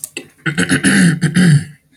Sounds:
Throat clearing